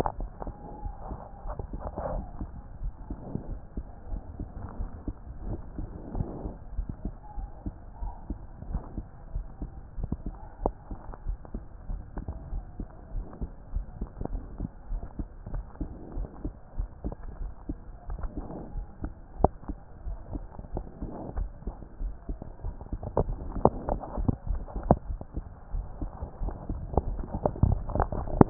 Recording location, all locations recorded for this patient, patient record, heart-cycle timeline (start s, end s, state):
aortic valve (AV)
aortic valve (AV)+aortic valve (AV)+pulmonary valve (PV)+tricuspid valve (TV)+mitral valve (MV)
#Age: Child
#Sex: Female
#Height: 137.0 cm
#Weight: 32.1 kg
#Pregnancy status: False
#Murmur: Absent
#Murmur locations: nan
#Most audible location: nan
#Systolic murmur timing: nan
#Systolic murmur shape: nan
#Systolic murmur grading: nan
#Systolic murmur pitch: nan
#Systolic murmur quality: nan
#Diastolic murmur timing: nan
#Diastolic murmur shape: nan
#Diastolic murmur grading: nan
#Diastolic murmur pitch: nan
#Diastolic murmur quality: nan
#Outcome: Abnormal
#Campaign: 2014 screening campaign
0.00	0.18	diastole
0.18	0.30	S1
0.30	0.46	systole
0.46	0.54	S2
0.54	0.82	diastole
0.82	0.96	S1
0.96	1.08	systole
1.08	1.18	S2
1.18	1.44	diastole
1.44	1.56	S1
1.56	1.72	systole
1.72	1.82	S2
1.82	2.06	diastole
2.06	2.24	S1
2.24	2.36	systole
2.36	2.50	S2
2.50	2.80	diastole
2.80	2.94	S1
2.94	3.10	systole
3.10	3.22	S2
3.22	3.50	diastole
3.50	3.62	S1
3.62	3.76	systole
3.76	3.86	S2
3.86	4.10	diastole
4.10	4.24	S1
4.24	4.38	systole
4.38	4.48	S2
4.48	4.76	diastole
4.76	4.90	S1
4.90	5.06	systole
5.06	5.16	S2
5.16	5.44	diastole
5.44	5.60	S1
5.60	5.76	systole
5.76	5.90	S2
5.90	6.14	diastole
6.14	6.28	S1
6.28	6.42	systole
6.42	6.52	S2
6.52	6.74	diastole
6.74	6.86	S1
6.86	7.04	systole
7.04	7.14	S2
7.14	7.38	diastole
7.38	7.50	S1
7.50	7.64	systole
7.64	7.74	S2
7.74	8.00	diastole
8.00	8.14	S1
8.14	8.28	systole
8.28	8.42	S2
8.42	8.68	diastole
8.68	8.82	S1
8.82	8.96	systole
8.96	9.06	S2
9.06	9.34	diastole
9.34	9.46	S1
9.46	9.60	systole
9.60	9.70	S2
9.70	9.96	diastole
9.96	10.10	S1
10.10	10.24	systole
10.24	10.34	S2
10.34	10.62	diastole
10.62	10.74	S1
10.74	10.92	systole
10.92	11.00	S2
11.00	11.26	diastole
11.26	11.38	S1
11.38	11.52	systole
11.52	11.62	S2
11.62	11.90	diastole
11.90	12.02	S1
12.02	12.18	systole
12.18	12.26	S2
12.26	12.50	diastole
12.50	12.64	S1
12.64	12.78	systole
12.78	12.88	S2
12.88	13.14	diastole
13.14	13.24	S1
13.24	13.40	systole
13.40	13.50	S2
13.50	13.74	diastole
13.74	13.88	S1
13.88	14.00	systole
14.00	14.10	S2
14.10	14.32	diastole
14.32	14.46	S1
14.46	14.58	systole
14.58	14.70	S2
14.70	14.90	diastole
14.90	15.04	S1
15.04	15.18	systole
15.18	15.28	S2
15.28	15.54	diastole
15.54	15.66	S1
15.66	15.82	systole
15.82	15.90	S2
15.90	16.14	diastole
16.14	16.28	S1
16.28	16.44	systole
16.44	16.54	S2
16.54	16.78	diastole
16.78	16.88	S1
16.88	17.04	systole
17.04	17.14	S2
17.14	17.38	diastole
17.38	17.52	S1
17.52	17.68	systole
17.68	17.78	S2
17.78	18.10	diastole
18.10	18.22	S1
18.22	18.36	systole
18.36	18.46	S2
18.46	18.76	diastole
18.76	18.86	S1
18.86	19.02	systole
19.02	19.12	S2
19.12	19.38	diastole
19.38	19.50	S1
19.50	19.68	systole
19.68	19.78	S2
19.78	20.04	diastole
20.04	20.18	S1
20.18	20.32	systole
20.32	20.44	S2
20.44	20.72	diastole
20.72	20.84	S1
20.84	21.02	systole
21.02	21.10	S2
21.10	21.36	diastole
21.36	21.54	S1
21.54	21.66	systole
21.66	21.76	S2
21.76	22.00	diastole
22.00	22.14	S1
22.14	22.28	systole
22.28	22.38	S2
22.38	22.64	diastole
22.64	22.76	S1
22.76	22.86	systole
22.86	22.92	S2
22.92	23.18	diastole
23.18	23.36	S1
23.36	23.54	systole
23.54	23.70	S2
23.70	23.90	diastole
23.90	24.02	S1
24.02	24.16	systole
24.16	24.26	S2
24.26	24.48	diastole
24.48	24.62	S1
24.62	24.74	systole
24.74	24.84	S2
24.84	25.08	diastole
25.08	25.22	S1
25.22	25.36	systole
25.36	25.46	S2
25.46	25.72	diastole
25.72	25.88	S1
25.88	26.00	systole
26.00	26.12	S2
26.12	26.40	diastole
26.40	26.54	S1
26.54	26.68	systole
26.68	26.78	S2
26.78	26.98	diastole
26.98	27.16	S1
27.16	27.32	systole
27.32	27.42	S2
27.42	27.64	diastole
27.64	27.82	S1
27.82	27.94	systole
27.94	28.08	S2
28.08	28.28	diastole
28.28	28.34	S1
28.34	28.38	systole
28.38	28.50	S2